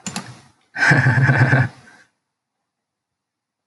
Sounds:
Laughter